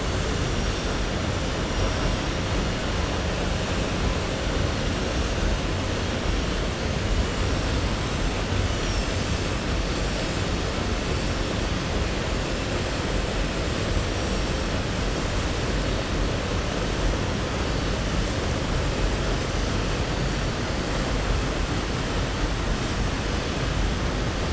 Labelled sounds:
14.1	14.5	vessel noise, 5.5 to 5.8 kHz

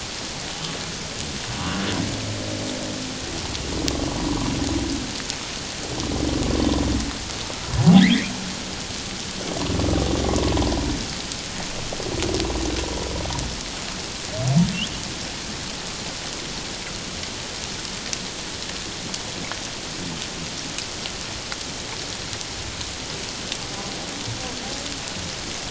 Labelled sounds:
8.0	8.3	humpback whale, 1.6 to 2.6 kHz

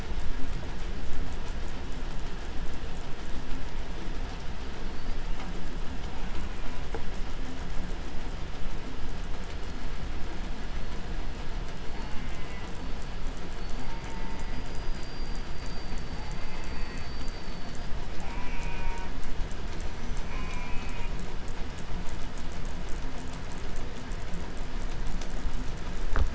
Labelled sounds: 4.7	5.4	killer whale, 4.0 to 5.5 kHz
6.1	7.5	killer whale, 0.72 to 3.9 kHz
11.9	12.9	killer whale, southern resident, J pod, call S04, 0.56 to 3.3 kHz
13.6	14.7	killer whale, southern resident, J pod, call S04, 0.65 to 3.3 kHz
16.0	17.1	killer whale, southern resident, J pod, call S04, 0.55 to 3.1 kHz
18.2	19.3	killer whale, southern resident, J pod, call S04, 0.58 to 3.5 kHz
20.1	21.3	killer whale, southern resident, J pod, call S04, 0.69 to 4.7 kHz

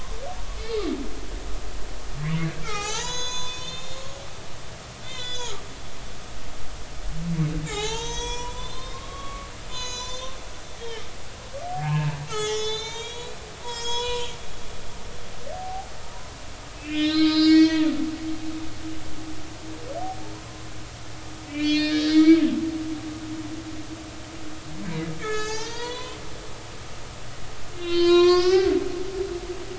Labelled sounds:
2.6	4.1	humpback whale, 0.80 to 7.6 kHz
5.0	5.6	humpback whale, 1.1 to 7.0 kHz
7.6	10.4	humpback whale, 0.80 to 7.9 kHz
10.8	11.0	humpback whale, 1.7 to 3.3 kHz
11.7	14.3	humpback whale, 0.80 to 7.7 kHz
15.5	15.9	humpback whale, 0.80 to 0.90 kHz
16.8	17.9	humpback whale, 1.2 to 7.0 kHz
18.3	18.8	humpback whale, 4.6 to 4.9 kHz
20.3	20.7	humpback whale, 0.96 to 1.1 kHz
21.5	22.4	humpback whale, 1.2 to 5.0 kHz
25.2	26.2	humpback whale, 0.80 to 7.6 kHz
27.7	28.8	humpback whale, 0.99 to 7.3 kHz

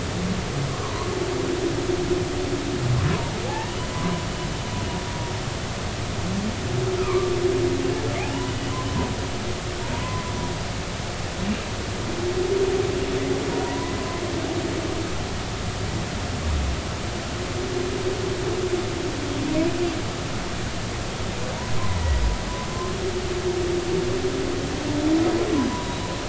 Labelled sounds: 0.8	1.1	humpback whale, 0.93 to 1.2 kHz
3.5	4.2	humpback whale, 0.80 to 1.9 kHz
7.0	7.4	humpback whale, 0.99 to 2.6 kHz
8.2	8.5	humpback whale, 0.80 to 1.0 kHz
9.9	10.2	humpback whale, 0.90 to 1.1 kHz
13.6	13.9	humpback whale, 0.90 to 1.1 kHz
25.8	26.1	humpback whale, 3.8 to 4.0 kHz

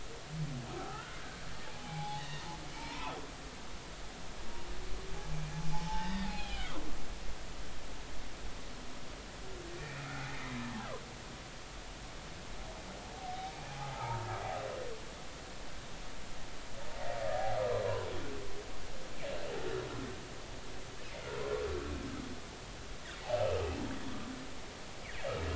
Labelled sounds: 0.8	1.2	humpback whale, 0.80 to 1.5 kHz
1.7	3.2	humpback whale, 0.80 to 3.0 kHz
5.7	6.8	humpback whale, 0.80 to 5.0 kHz
9.8	10.6	humpback whale, 1.3 to 2.5 kHz
13.2	14.3	humpback whale, 0.80 to 0.99 kHz
17.6	17.8	humpback whale, 0.96 to 1.3 kHz

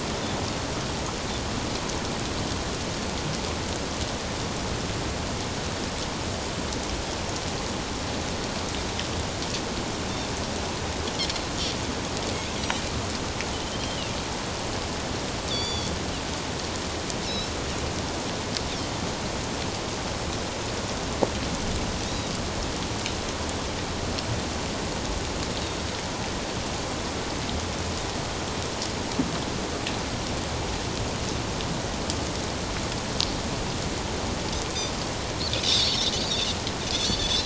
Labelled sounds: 13.5	14.0	Pacific white-sided dolphin, 3.0 to 3.2 kHz
15.5	15.9	Pacific white-sided dolphin, 3.3 to 7.0 kHz
17.3	17.5	Pacific white-sided dolphin, 5.1 to 5.5 kHz
22.1	22.3	Pacific white-sided dolphin, 3.7 to 4.0 kHz
35.6	36.1	Pacific white-sided dolphin, 3.3 to 5.6 kHz
36.9	37.4	Pacific white-sided dolphin, 3.2 to 4.7 kHz

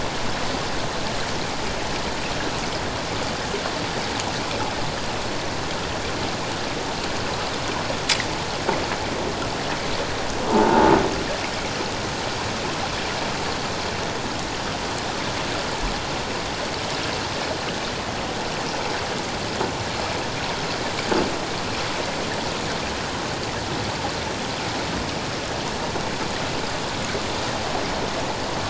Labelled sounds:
10.5	10.9	croaking sound likely from a nearby submerged object, 0.81 to 1.0 kHz

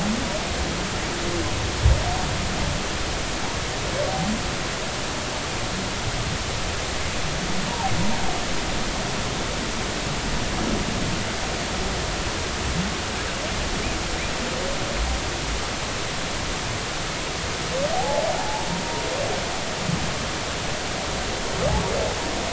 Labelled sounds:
7.7	7.9	humpback whale, 0.80 to 0.99 kHz
17.9	18.7	humpback whale, 0.80 to 0.96 kHz

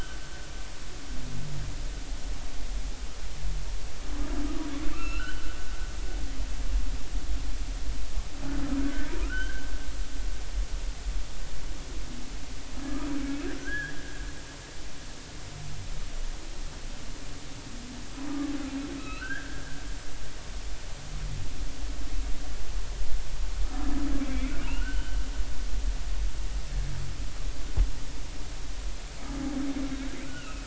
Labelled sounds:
4.9	5.6	humpback whale, 1.1 to 4.3 kHz
8.8	9.7	humpback whale, 1.2 to 3.2 kHz
13.6	14.0	humpback whale, 1.5 to 1.9 kHz
19.0	19.6	humpback whale, 1.2 to 4.2 kHz
24.3	25.2	humpback whale, 1.3 to 3.1 kHz
30.2	30.6	humpback whale, 1.2 to 3.1 kHz

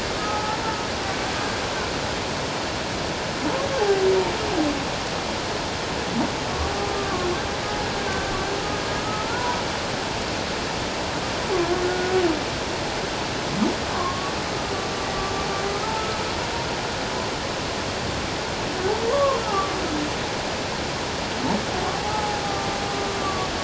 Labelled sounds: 0.2	0.6	humpback whale, 0.81 to 1.4 kHz
6.9	7.3	humpback whale, 1.0 to 1.2 kHz
9.0	9.6	humpback whale, 0.88 to 1.5 kHz
11.8	12.1	humpback whale, 1.4 to 1.5 kHz
13.9	14.4	humpback whale, 1.0 to 1.2 kHz
15.7	15.9	humpback whale, 1.2 to 1.3 kHz
19.1	19.7	humpback whale, 0.88 to 1.4 kHz
21.9	22.8	humpback whale, 0.78 to 1.2 kHz
23.2	23.5	humpback whale, 1.1 to 1.2 kHz

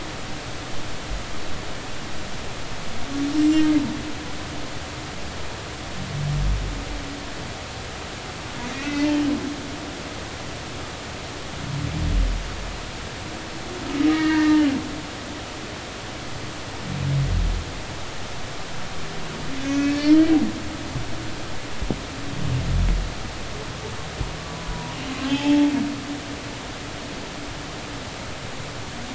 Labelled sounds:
8.7	9.1	humpback whale, 1.8 to 2.7 kHz
14.1	14.7	humpback whale, 1.2 to 2.3 kHz
19.6	20.2	humpback whale, 1.6 to 6.3 kHz
24.5	25.7	humpback whale, 0.80 to 1.1 kHz

